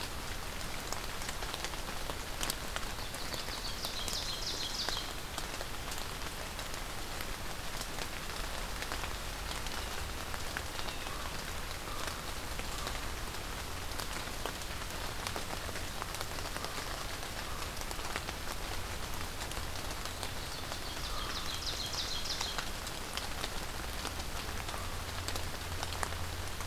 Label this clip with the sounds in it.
Ovenbird, Blue Jay, Common Raven